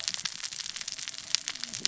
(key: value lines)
label: biophony, cascading saw
recorder: SoundTrap 600 or HydroMoth